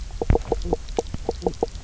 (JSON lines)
{"label": "biophony, knock croak", "recorder": "SoundTrap 300"}